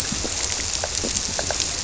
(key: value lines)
label: biophony
recorder: SoundTrap 300